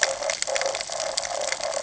{"label": "ambient", "recorder": "HydroMoth"}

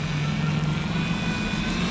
{"label": "anthrophony, boat engine", "recorder": "SoundTrap 500"}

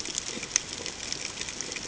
{"label": "ambient", "recorder": "HydroMoth"}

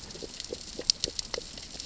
{"label": "biophony, grazing", "recorder": "SoundTrap 600 or HydroMoth"}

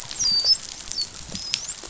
{"label": "biophony, dolphin", "recorder": "SoundTrap 500"}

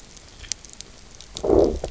{"label": "biophony, low growl", "recorder": "SoundTrap 300"}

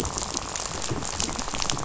{"label": "biophony, rattle", "recorder": "SoundTrap 500"}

